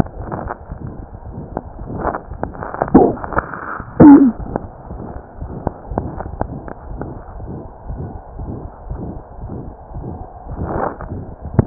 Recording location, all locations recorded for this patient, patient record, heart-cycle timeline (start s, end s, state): mitral valve (MV)
aortic valve (AV)+pulmonary valve (PV)+tricuspid valve (TV)+mitral valve (MV)
#Age: Child
#Sex: Male
#Height: nan
#Weight: nan
#Pregnancy status: False
#Murmur: Present
#Murmur locations: aortic valve (AV)+mitral valve (MV)+pulmonary valve (PV)+tricuspid valve (TV)
#Most audible location: tricuspid valve (TV)
#Systolic murmur timing: Holosystolic
#Systolic murmur shape: Diamond
#Systolic murmur grading: III/VI or higher
#Systolic murmur pitch: High
#Systolic murmur quality: Blowing
#Diastolic murmur timing: nan
#Diastolic murmur shape: nan
#Diastolic murmur grading: nan
#Diastolic murmur pitch: nan
#Diastolic murmur quality: nan
#Outcome: Abnormal
#Campaign: 2015 screening campaign
0.00	7.34	unannotated
7.34	7.46	S1
7.46	7.63	systole
7.63	7.69	S2
7.69	7.86	diastole
7.86	7.98	S1
7.98	8.13	systole
8.13	8.20	S2
8.20	8.35	diastole
8.35	8.46	S1
8.46	8.62	systole
8.62	8.69	S2
8.69	8.85	diastole
8.85	8.97	S1
8.97	9.14	systole
9.14	9.21	S2
9.21	9.38	diastole
9.38	9.49	S1
9.49	9.64	systole
9.64	9.73	S2
9.73	9.87	diastole
9.87	10.01	S1
10.01	10.17	systole
10.17	10.25	S2
10.25	11.66	unannotated